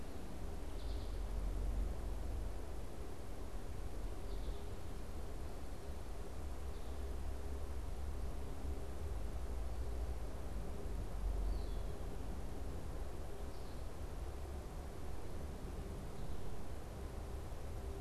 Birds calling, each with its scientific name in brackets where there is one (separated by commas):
Red-winged Blackbird (Agelaius phoeniceus), American Goldfinch (Spinus tristis)